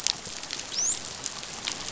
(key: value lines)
label: biophony, dolphin
recorder: SoundTrap 500